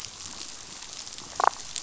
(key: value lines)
label: biophony, damselfish
recorder: SoundTrap 500